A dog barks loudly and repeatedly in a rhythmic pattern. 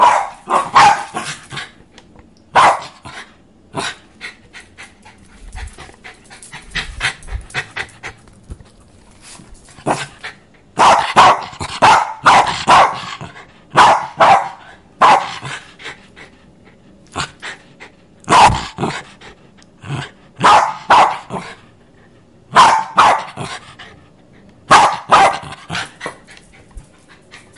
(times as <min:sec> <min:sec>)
0:08.7 0:21.9